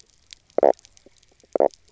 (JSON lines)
{"label": "biophony, knock croak", "recorder": "SoundTrap 300"}